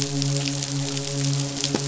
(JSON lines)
{"label": "biophony, midshipman", "recorder": "SoundTrap 500"}